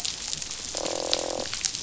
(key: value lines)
label: biophony, croak
recorder: SoundTrap 500